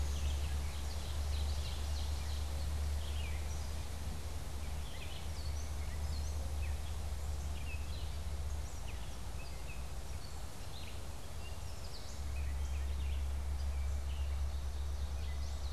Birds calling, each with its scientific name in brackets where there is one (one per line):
Gray Catbird (Dumetella carolinensis)
Red-eyed Vireo (Vireo olivaceus)
White-breasted Nuthatch (Sitta carolinensis)
Ovenbird (Seiurus aurocapilla)